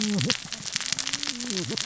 {"label": "biophony, cascading saw", "recorder": "SoundTrap 600 or HydroMoth"}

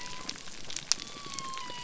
{"label": "biophony", "recorder": "SoundTrap 300"}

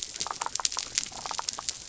{"label": "biophony", "recorder": "SoundTrap 300"}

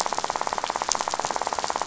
{"label": "biophony, rattle", "recorder": "SoundTrap 500"}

